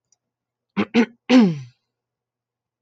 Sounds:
Throat clearing